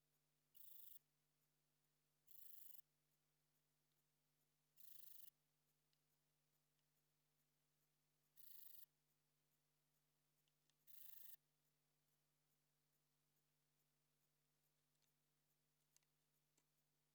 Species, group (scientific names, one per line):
Rhacocleis annulata
Orthoptera